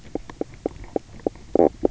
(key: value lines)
label: biophony, knock croak
recorder: SoundTrap 300